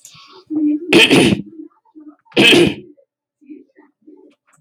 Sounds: Throat clearing